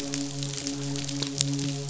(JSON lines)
{"label": "biophony, midshipman", "recorder": "SoundTrap 500"}